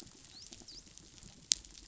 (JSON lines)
{"label": "biophony, dolphin", "recorder": "SoundTrap 500"}